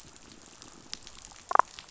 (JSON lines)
{"label": "biophony, damselfish", "recorder": "SoundTrap 500"}
{"label": "biophony", "recorder": "SoundTrap 500"}